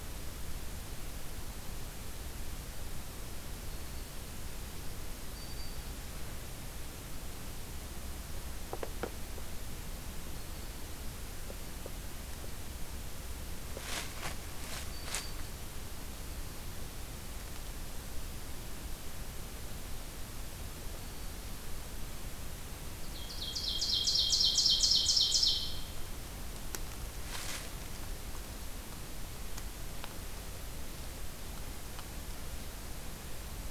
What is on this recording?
Black-throated Green Warbler, Ovenbird